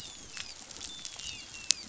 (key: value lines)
label: biophony, dolphin
recorder: SoundTrap 500